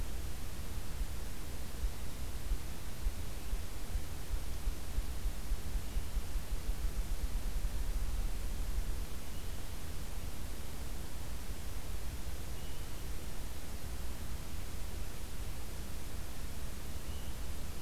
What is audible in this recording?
Swainson's Thrush